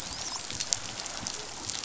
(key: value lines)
label: biophony, dolphin
recorder: SoundTrap 500